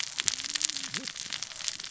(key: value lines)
label: biophony, cascading saw
recorder: SoundTrap 600 or HydroMoth